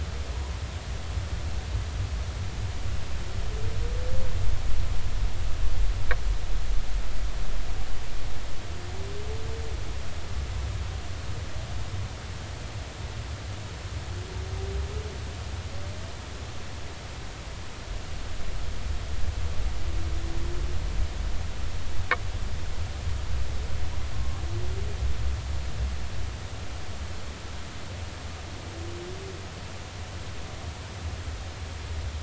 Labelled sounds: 24.1	24.4	humpback whale, 1.0 to 1.2 kHz

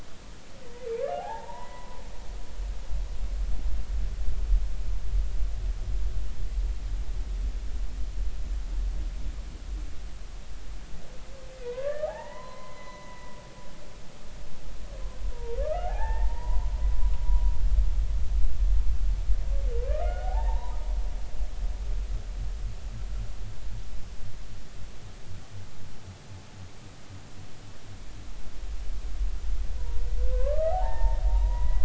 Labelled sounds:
1.2	2.0	humpback whale, 0.80 to 2.0 kHz
11.5	13.4	humpback whale, 0.80 to 4.1 kHz
15.3	16.6	humpback whale, 0.80 to 2.0 kHz
20.0	20.8	humpback whale, 0.80 to 2.2 kHz
29.8	31.8	humpback whale, 0.80 to 2.1 kHz

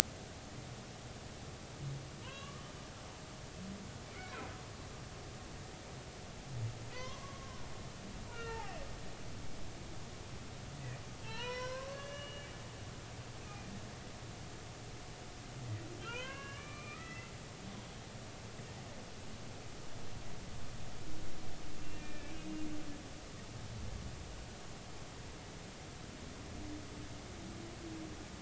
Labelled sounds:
2.2	2.6	humpback whale, 0.90 to 3.5 kHz
6.9	8.8	humpback whale, 0.80 to 2.9 kHz
11.2	12.5	humpback whale, 0.83 to 5.8 kHz
13.4	13.7	humpback whale, 2.4 to 2.7 kHz
16.0	17.3	humpback whale, 0.90 to 3.2 kHz
21.7	22.3	humpback whale, 1.7 to 2.8 kHz

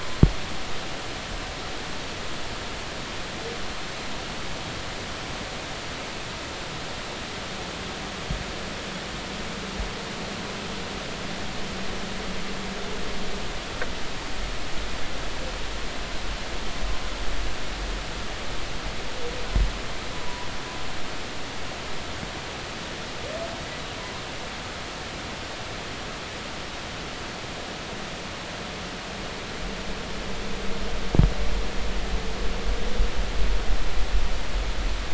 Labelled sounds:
20.2	20.5	humpback whale, 0.93 to 1.1 kHz

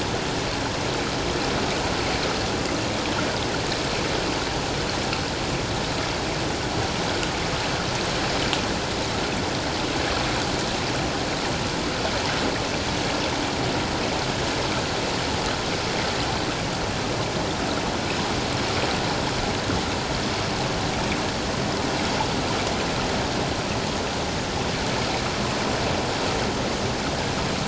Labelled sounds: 19.7	20.0	water noise, 6.3 to 6.5 kHz

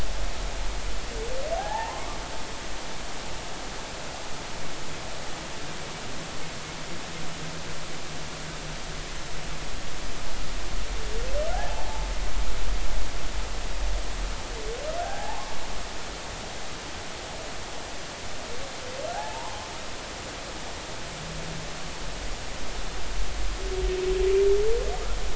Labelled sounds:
1.6	2.2	humpback whale, 0.80 to 1.9 kHz
11.5	12.1	humpback whale, 0.80 to 0.93 kHz
15.0	15.6	humpback whale, 0.80 to 1.8 kHz
19.1	19.7	humpback whale, 0.80 to 1.8 kHz

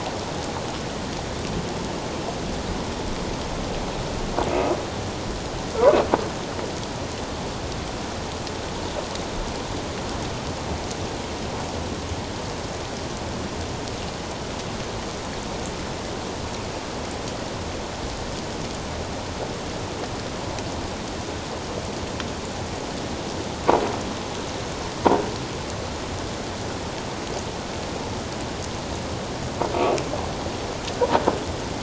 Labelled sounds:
29.7	30.0	croaking sound likely from a nearby submerged object, 2.2 to 2.7 kHz

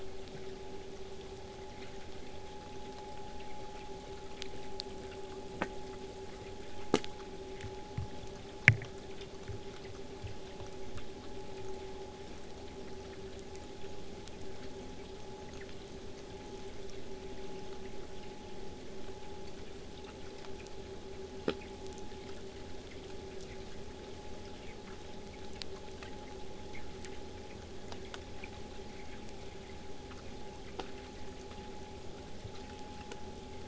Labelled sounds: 28.7	33.6	vessel noise, 0 to 8.0 kHz

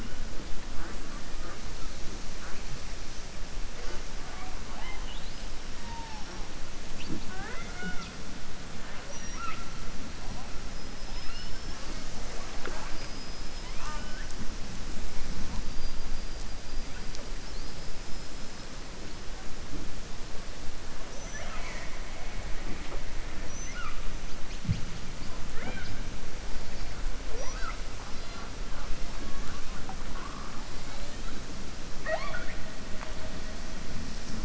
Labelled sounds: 7.0	8.2	killer whale, southern resident, 0.15 to 5.7 kHz
12.8	14.3	killer whale, southern resident, 0.62 to 5.5 kHz

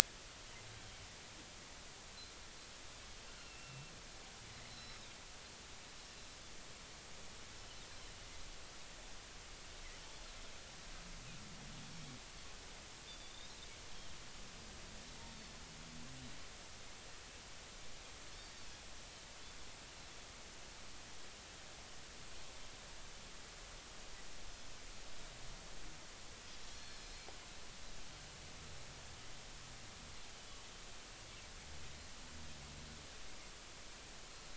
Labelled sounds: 3.4	3.9	Pacific white-sided dolphin, 2.5 to 2.8 kHz
4.7	5.1	Pacific white-sided dolphin, 3.9 to 5.5 kHz
6.1	6.4	Pacific white-sided dolphin, 3.9 to 4.1 kHz
13.1	13.5	Pacific white-sided dolphin, 3.4 to 3.8 kHz
26.7	27.2	Pacific white-sided dolphin, 4.2 to 5.2 kHz

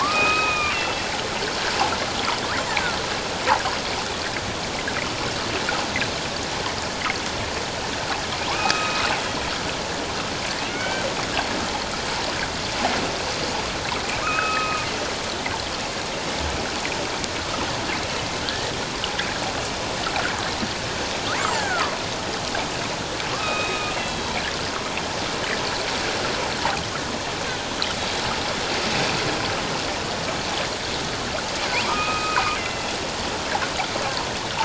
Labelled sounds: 0.0	1.1	killer whale, northern resident, A clan, AB subclan, 0.94 to 3.8 kHz
8.5	9.0	killer whale, northern resident, A clan, AB subclan, 0.78 to 2.6 kHz
10.7	11.1	killer whale, northern resident, A clan, AB subclan, 1.4 to 3.2 kHz
14.2	14.9	killer whale, northern resident, A clan, AB subclan, 1.2 to 2.6 kHz
18.4	18.7	killer whale, northern resident, A clan, AB subclan, 1.4 to 1.9 kHz
21.3	22.0	killer whale, northern resident, A clan, AB subclan, 0.78 to 2.3 kHz
23.3	24.4	killer whale, northern resident, A clan, AB subclan, 1.1 to 4.1 kHz
31.7	32.9	killer whale, northern resident, A clan, AB subclan, 0.78 to 2.8 kHz

